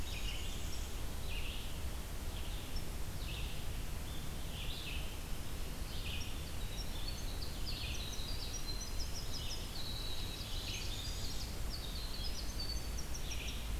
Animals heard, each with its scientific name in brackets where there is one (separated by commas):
Blackburnian Warbler (Setophaga fusca), Red-eyed Vireo (Vireo olivaceus), Winter Wren (Troglodytes hiemalis)